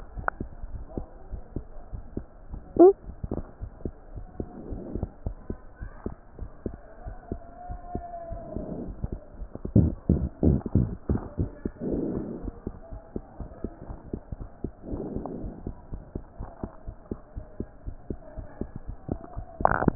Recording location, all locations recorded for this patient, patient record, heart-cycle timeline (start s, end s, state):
aortic valve (AV)
aortic valve (AV)+pulmonary valve (PV)+tricuspid valve (TV)+mitral valve (MV)
#Age: Child
#Sex: Male
#Height: 108.0 cm
#Weight: 23.8 kg
#Pregnancy status: False
#Murmur: Absent
#Murmur locations: nan
#Most audible location: nan
#Systolic murmur timing: nan
#Systolic murmur shape: nan
#Systolic murmur grading: nan
#Systolic murmur pitch: nan
#Systolic murmur quality: nan
#Diastolic murmur timing: nan
#Diastolic murmur shape: nan
#Diastolic murmur grading: nan
#Diastolic murmur pitch: nan
#Diastolic murmur quality: nan
#Outcome: Normal
#Campaign: 2015 screening campaign
0.00	1.06	unannotated
1.06	1.30	diastole
1.30	1.38	S1
1.38	1.54	systole
1.54	1.64	S2
1.64	1.90	diastole
1.90	2.02	S1
2.02	2.16	systole
2.16	2.26	S2
2.26	2.50	diastole
2.50	2.62	S1
2.62	2.74	systole
2.74	2.81	S2
2.81	3.03	diastole
3.03	3.15	S1
3.15	3.22	systole
3.22	3.29	S2
3.29	3.58	diastole
3.58	3.72	S1
3.72	3.81	systole
3.81	3.90	S2
3.90	4.11	diastole
4.11	4.25	S1
4.25	4.37	systole
4.37	4.44	S2
4.44	4.66	diastole
4.66	4.79	S1
4.79	4.92	systole
4.92	5.02	S2
5.02	5.22	diastole
5.22	5.36	S1
5.36	5.48	systole
5.48	5.58	S2
5.58	5.78	diastole
5.78	5.90	S1
5.90	6.04	systole
6.04	6.16	S2
6.16	6.35	diastole
6.35	6.50	S1
6.50	6.64	systole
6.64	6.76	S2
6.76	7.02	diastole
7.02	7.16	S1
7.16	7.28	systole
7.28	7.42	S2
7.42	7.66	diastole
7.66	7.80	S1
7.80	7.94	systole
7.94	8.06	S2
8.06	8.27	diastole
8.27	8.42	S1
8.42	8.52	systole
8.52	8.64	S2
8.64	8.84	diastole
8.84	8.96	S1
8.96	9.10	systole
9.10	9.22	S2
9.22	9.36	diastole
9.36	9.48	S1
9.48	9.62	systole
9.62	9.74	S2
9.74	9.88	diastole
9.88	10.08	S1
10.08	10.16	systole
10.16	10.31	S2
10.31	10.44	diastole
10.44	10.55	S1
10.55	10.63	systole
10.63	10.74	S2
10.74	10.86	diastole
10.86	10.98	S1
10.98	11.08	systole
11.08	11.23	S2
11.23	11.37	diastole
11.37	11.49	S1
11.49	11.63	systole
11.63	11.75	S2
11.75	12.40	diastole
12.40	12.55	S1
12.55	12.65	systole
12.65	12.76	S2
12.76	12.89	diastole
12.89	13.01	S1
13.01	13.14	systole
13.14	13.26	S2
13.26	13.38	diastole
13.38	13.52	S1
13.52	13.60	systole
13.60	13.69	S2
13.69	13.82	diastole
13.82	13.96	S1
13.96	14.12	systole
14.12	14.22	S2
14.22	14.37	diastole
14.37	14.52	S1
14.52	14.62	systole
14.62	14.73	S2
14.73	15.40	diastole
15.40	15.53	S1
15.53	15.61	systole
15.61	15.75	S2
15.75	15.90	diastole
15.90	16.04	S1
16.04	16.14	systole
16.14	16.25	S2
16.25	16.37	diastole
16.37	16.51	S1
16.51	16.62	systole
16.62	16.74	S2
16.74	16.85	systole
16.85	16.99	S1
16.99	17.10	systole
17.10	17.17	S2
17.17	17.34	diastole
17.34	17.44	S1
17.44	17.58	systole
17.58	17.68	S2
17.68	17.86	diastole
17.86	17.96	S1
17.96	18.08	systole
18.08	18.18	S2
18.18	18.36	diastole
18.36	18.44	S1
18.44	18.60	systole
18.60	18.70	S2
18.70	18.88	diastole
18.88	19.00	S1
19.00	19.09	systole
19.09	19.21	S2
19.21	19.37	diastole
19.37	19.95	unannotated